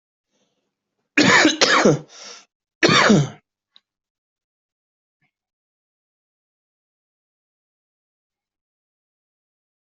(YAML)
expert_labels:
- quality: good
  cough_type: dry
  dyspnea: false
  wheezing: true
  stridor: false
  choking: false
  congestion: false
  nothing: false
  diagnosis: obstructive lung disease
  severity: mild
age: 31
gender: male
respiratory_condition: true
fever_muscle_pain: true
status: COVID-19